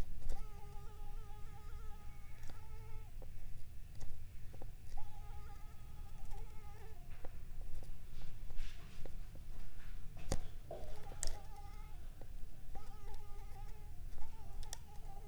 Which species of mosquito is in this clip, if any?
Anopheles arabiensis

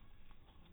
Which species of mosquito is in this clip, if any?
mosquito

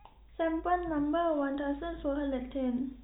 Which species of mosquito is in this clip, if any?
no mosquito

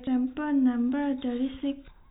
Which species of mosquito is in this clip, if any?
no mosquito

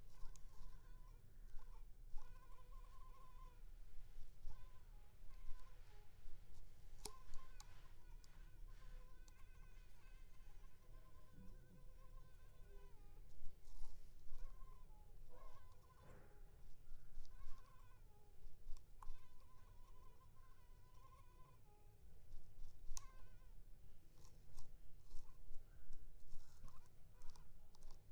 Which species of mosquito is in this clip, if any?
Culex pipiens complex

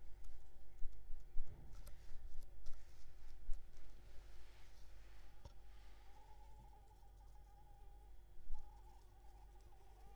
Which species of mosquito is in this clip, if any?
Anopheles arabiensis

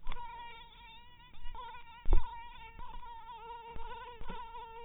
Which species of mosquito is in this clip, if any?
mosquito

